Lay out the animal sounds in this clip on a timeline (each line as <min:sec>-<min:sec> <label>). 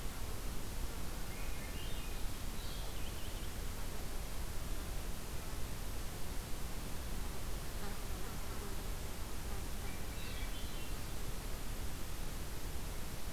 0:01.2-0:02.2 Swainson's Thrush (Catharus ustulatus)
0:02.5-0:03.5 Purple Finch (Haemorhous purpureus)
0:09.8-0:11.0 Swainson's Thrush (Catharus ustulatus)